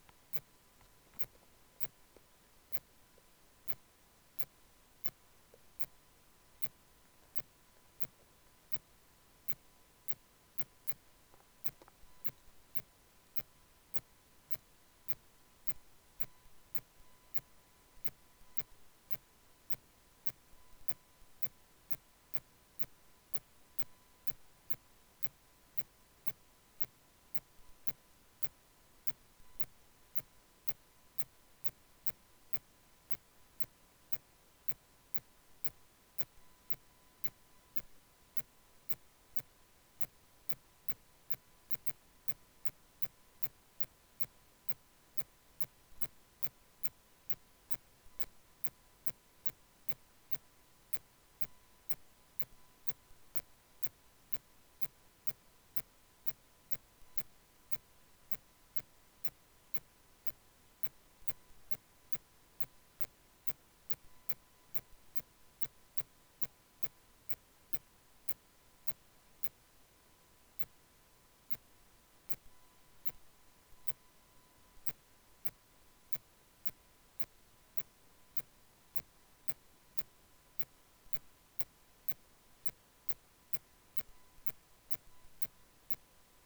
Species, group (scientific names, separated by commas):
Phaneroptera falcata, Orthoptera